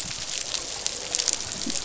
{"label": "biophony, croak", "recorder": "SoundTrap 500"}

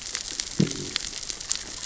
{"label": "biophony, growl", "recorder": "SoundTrap 600 or HydroMoth"}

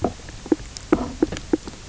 {"label": "biophony, knock croak", "recorder": "SoundTrap 300"}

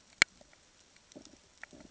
{"label": "ambient", "recorder": "HydroMoth"}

